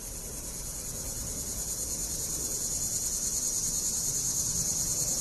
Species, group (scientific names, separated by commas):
Neotibicen linnei, Cicadidae